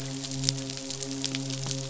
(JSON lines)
{"label": "biophony, midshipman", "recorder": "SoundTrap 500"}